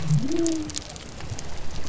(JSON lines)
{"label": "biophony", "recorder": "SoundTrap 300"}